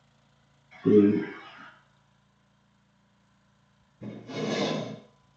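At the start, someone says "eight". Then, about 4 seconds in, a glass window opens. A quiet background noise persists.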